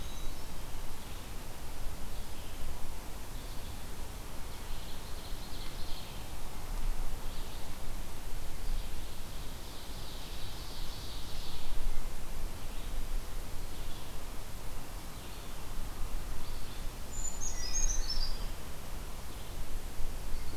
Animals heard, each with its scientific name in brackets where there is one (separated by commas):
Brown Creeper (Certhia americana), Ovenbird (Seiurus aurocapilla), Eastern Wood-Pewee (Contopus virens), Red-eyed Vireo (Vireo olivaceus)